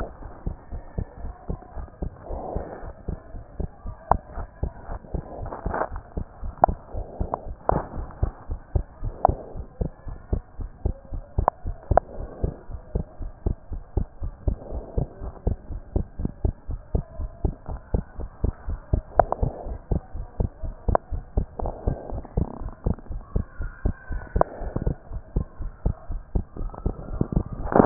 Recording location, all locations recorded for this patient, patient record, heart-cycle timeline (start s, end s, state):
pulmonary valve (PV)
aortic valve (AV)+pulmonary valve (PV)+tricuspid valve (TV)+mitral valve (MV)
#Age: Child
#Sex: Female
#Height: 130.0 cm
#Weight: 22.9 kg
#Pregnancy status: False
#Murmur: Absent
#Murmur locations: nan
#Most audible location: nan
#Systolic murmur timing: nan
#Systolic murmur shape: nan
#Systolic murmur grading: nan
#Systolic murmur pitch: nan
#Systolic murmur quality: nan
#Diastolic murmur timing: nan
#Diastolic murmur shape: nan
#Diastolic murmur grading: nan
#Diastolic murmur pitch: nan
#Diastolic murmur quality: nan
#Outcome: Normal
#Campaign: 2014 screening campaign
0.00	0.15	unannotated
0.15	0.22	diastole
0.22	0.32	S1
0.32	0.46	systole
0.46	0.56	S2
0.56	0.72	diastole
0.72	0.82	S1
0.82	0.94	systole
0.94	1.06	S2
1.06	1.22	diastole
1.22	1.34	S1
1.34	1.48	systole
1.48	1.60	S2
1.60	1.76	diastole
1.76	1.88	S1
1.88	1.98	systole
1.98	2.12	S2
2.12	2.28	diastole
2.28	2.40	S1
2.40	2.52	systole
2.52	2.66	S2
2.66	2.84	diastole
2.84	2.92	S1
2.92	3.04	systole
3.04	3.18	S2
3.18	3.34	diastole
3.34	3.42	S1
3.42	3.56	systole
3.56	3.70	S2
3.70	3.86	diastole
3.86	3.96	S1
3.96	4.10	systole
4.10	4.22	S2
4.22	4.36	diastole
4.36	4.48	S1
4.48	4.60	systole
4.60	4.74	S2
4.74	4.90	diastole
4.90	5.00	S1
5.00	5.14	systole
5.14	5.24	S2
5.24	5.40	diastole
5.40	5.52	S1
5.52	5.64	systole
5.64	5.76	S2
5.76	5.92	diastole
5.92	6.02	S1
6.02	6.16	systole
6.16	6.26	S2
6.26	6.42	diastole
6.42	6.54	S1
6.54	6.62	systole
6.62	6.76	S2
6.76	6.94	diastole
6.94	7.06	S1
7.06	7.18	systole
7.18	7.32	S2
7.32	7.46	diastole
7.46	7.56	S1
7.56	7.68	systole
7.68	7.84	S2
7.84	7.96	diastole
7.96	8.08	S1
8.08	8.18	systole
8.18	8.34	S2
8.34	8.50	diastole
8.50	8.60	S1
8.60	8.70	systole
8.70	8.86	S2
8.86	9.02	diastole
9.02	9.14	S1
9.14	9.26	systole
9.26	9.40	S2
9.40	9.56	diastole
9.56	9.68	S1
9.68	9.80	systole
9.80	9.92	S2
9.92	10.08	diastole
10.08	10.18	S1
10.18	10.28	systole
10.28	10.44	S2
10.44	10.60	diastole
10.60	10.70	S1
10.70	10.84	systole
10.84	10.96	S2
10.96	11.12	diastole
11.12	11.24	S1
11.24	11.38	systole
11.38	11.52	S2
11.52	11.66	diastole
11.66	11.76	S1
11.76	11.86	systole
11.86	12.02	S2
12.02	12.18	diastole
12.18	12.28	S1
12.28	12.42	systole
12.42	12.54	S2
12.54	12.70	diastole
12.70	12.82	S1
12.82	12.94	systole
12.94	13.06	S2
13.06	13.20	diastole
13.20	13.32	S1
13.32	13.42	systole
13.42	13.58	S2
13.58	13.72	diastole
13.72	13.84	S1
13.84	13.98	systole
13.98	14.08	S2
14.08	14.22	diastole
14.22	14.34	S1
14.34	14.46	systole
14.46	14.60	S2
14.60	14.72	diastole
14.72	14.84	S1
14.84	14.96	systole
14.96	15.08	S2
15.08	15.22	diastole
15.22	15.34	S1
15.34	15.48	systole
15.48	15.58	S2
15.58	15.72	diastole
15.72	15.82	S1
15.82	15.94	systole
15.94	16.08	S2
16.08	16.20	diastole
16.20	16.34	S1
16.34	16.46	systole
16.46	16.58	S2
16.58	16.70	diastole
16.70	16.80	S1
16.80	16.90	systole
16.90	17.04	S2
17.04	17.18	diastole
17.18	17.32	S1
17.32	17.46	systole
17.46	17.56	S2
17.56	17.70	diastole
17.70	17.80	S1
17.80	17.94	systole
17.94	18.06	S2
18.06	18.20	diastole
18.20	18.30	S1
18.30	18.40	systole
18.40	18.50	S2
18.50	18.66	diastole
18.66	18.80	S1
18.80	18.92	systole
18.92	19.04	S2
19.04	19.18	diastole
19.18	19.30	S1
19.30	19.40	systole
19.40	19.54	S2
19.54	19.68	diastole
19.68	19.80	S1
19.80	19.90	systole
19.90	20.02	S2
20.02	20.16	diastole
20.16	20.28	S1
20.28	20.36	systole
20.36	20.48	S2
20.48	20.62	diastole
20.62	20.76	S1
20.76	20.84	systole
20.84	20.98	S2
20.98	21.12	diastole
21.12	21.24	S1
21.24	21.34	systole
21.34	21.48	S2
21.48	21.60	diastole
21.60	21.74	S1
21.74	21.86	systole
21.86	21.98	S2
21.98	22.10	diastole
22.10	22.24	S1
22.24	22.36	systole
22.36	22.50	S2
22.50	22.62	diastole
22.62	22.74	S1
22.74	22.84	systole
22.84	22.98	S2
22.98	23.10	diastole
23.10	23.22	S1
23.22	23.32	systole
23.32	23.46	S2
23.46	23.60	diastole
23.60	23.72	S1
23.72	23.86	systole
23.86	23.98	S2
23.98	24.10	diastole
24.10	24.24	S1
24.24	24.36	systole
24.36	24.48	S2
24.48	24.62	diastole
24.62	24.74	S1
24.74	24.86	systole
24.86	24.98	S2
24.98	25.12	diastole
25.12	25.22	S1
25.22	25.34	systole
25.34	25.48	S2
25.48	25.60	diastole
25.60	25.72	S1
25.72	25.82	systole
25.82	25.96	S2
25.96	26.10	diastole
26.10	26.22	S1
26.22	26.36	systole
26.36	26.48	S2
26.48	26.60	diastole
26.60	27.86	unannotated